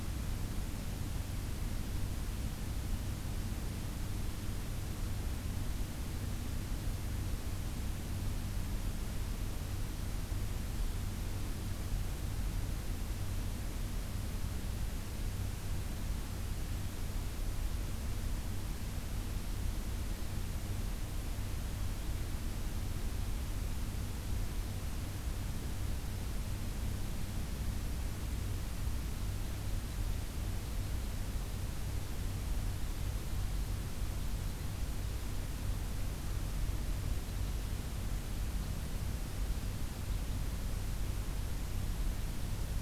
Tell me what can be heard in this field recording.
forest ambience